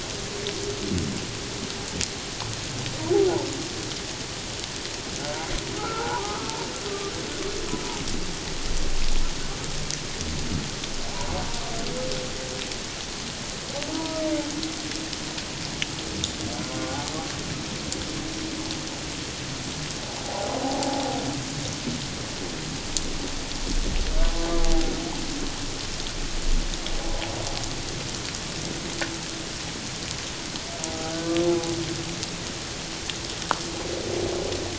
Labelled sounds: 5.8	6.5	humpback whale, 0.78 to 1.6 kHz
13.9	14.2	humpback whale, 0.91 to 1.0 kHz
16.9	17.1	humpback whale, 0.78 to 0.91 kHz
20.2	21.1	humpback whale, 0.78 to 0.94 kHz
31.0	31.3	humpback whale, 1.4 to 1.6 kHz

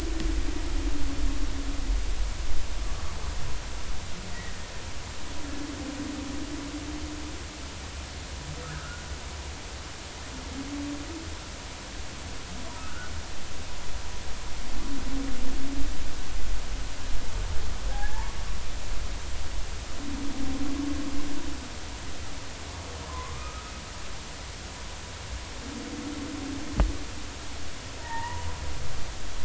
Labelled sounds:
4.3	4.6	humpback whale, 1.8 to 2.0 kHz
8.6	9.0	humpback whale, 1.2 to 1.8 kHz
17.9	18.4	humpback whale, 0.80 to 1.8 kHz
23.1	23.7	humpback whale, 0.96 to 1.5 kHz
28.0	28.4	humpback whale, 1.8 to 2.0 kHz
29.0	29.4	humpback whale, 0.83 to 1.1 kHz

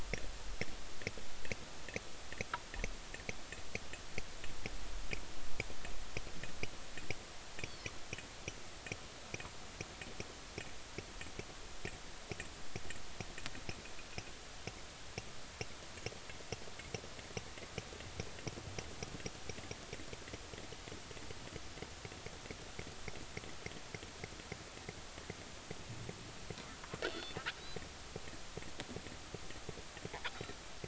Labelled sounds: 27.1	27.4	killer whale, northern resident, G clan, 3.4 to 4.5 kHz

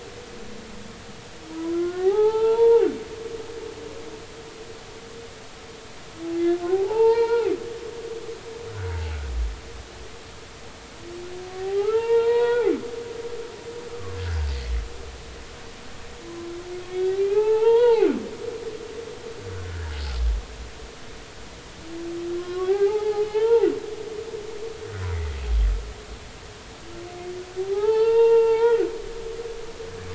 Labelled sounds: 1.5	2.9	humpback whale, 0.80 to 3.5 kHz
6.7	7.6	humpback whale, 0.80 to 4.8 kHz
11.5	12.7	humpback whale, 0.80 to 4.4 kHz
13.9	14.2	humpback whale, 0.99 to 1.3 kHz
16.3	18.1	humpback whale, 0.80 to 4.0 kHz
19.7	20.0	humpback whale, 1.4 to 1.8 kHz
22.3	23.7	humpback whale, 0.80 to 3.3 kHz
25.1	25.4	humpback whale, 1.8 to 2.3 kHz
27.6	28.9	humpback whale, 0.80 to 4.6 kHz

